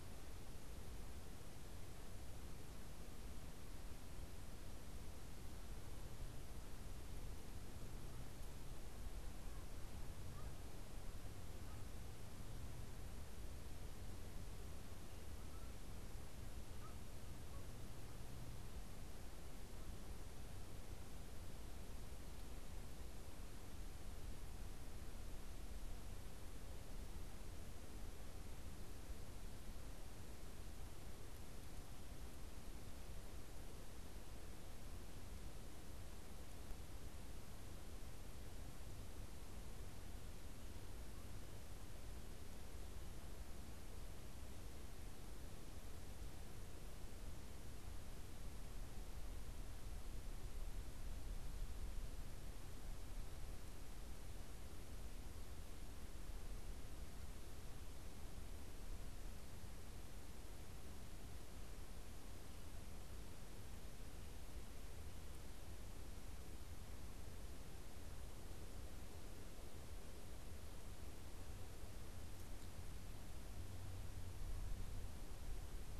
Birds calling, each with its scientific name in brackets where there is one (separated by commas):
Canada Goose (Branta canadensis)